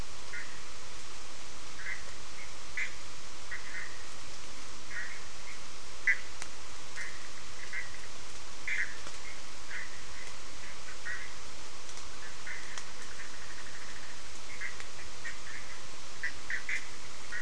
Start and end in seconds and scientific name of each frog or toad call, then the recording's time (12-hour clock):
0.2	17.4	Boana bischoffi
5:00am